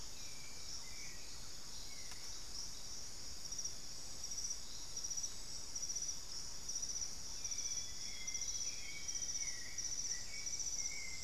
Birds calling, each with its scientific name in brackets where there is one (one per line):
Amazonian Grosbeak (Cyanoloxia rothschildii)
Black-faced Antthrush (Formicarius analis)
White-necked Thrush (Turdus albicollis)
Thrush-like Wren (Campylorhynchus turdinus)
Amazonian Motmot (Momotus momota)